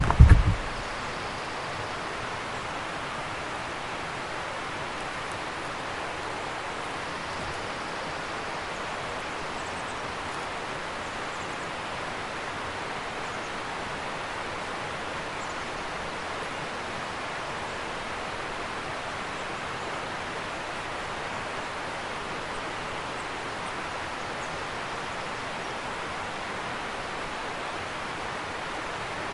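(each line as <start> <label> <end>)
0.6 Ambient outdoor nature sounds. 29.3
1.3 Birds are singing faintly against the indistinct hum of nature. 28.5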